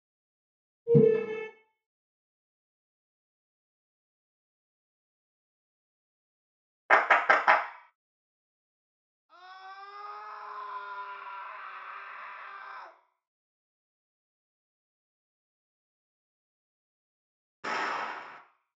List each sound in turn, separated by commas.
wooden furniture moving, clapping, screaming, explosion